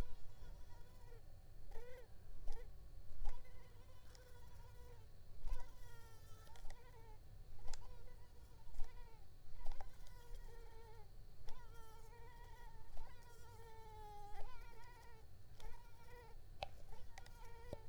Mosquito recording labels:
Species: Culex tigripes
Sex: female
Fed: unfed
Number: one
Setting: cup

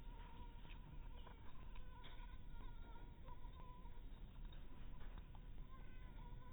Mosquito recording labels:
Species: Anopheles maculatus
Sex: female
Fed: unfed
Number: one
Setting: cup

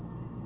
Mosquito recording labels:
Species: Anopheles merus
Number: one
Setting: insect culture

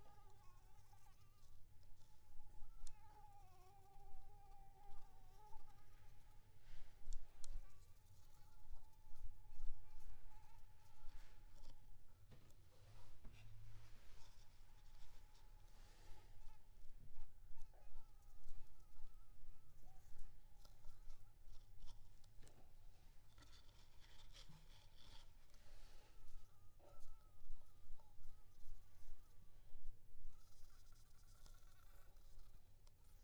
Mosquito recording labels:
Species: Anopheles maculipalpis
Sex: female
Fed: unfed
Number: one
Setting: cup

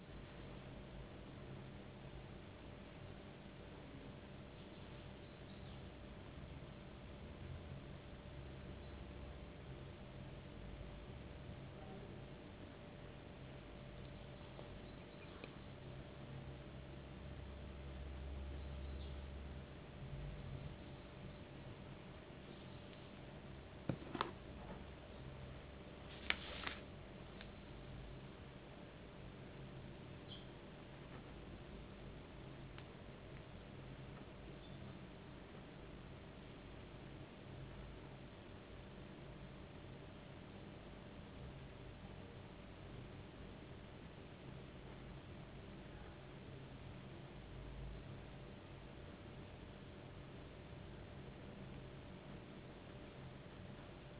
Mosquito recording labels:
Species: no mosquito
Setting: insect culture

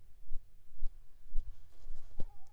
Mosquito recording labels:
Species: Anopheles squamosus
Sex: female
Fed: unfed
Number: one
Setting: cup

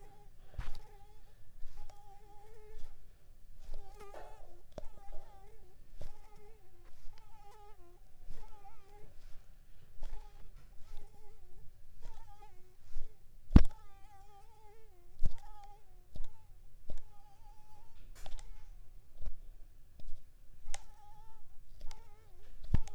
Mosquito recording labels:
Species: Mansonia uniformis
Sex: female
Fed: unfed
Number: one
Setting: cup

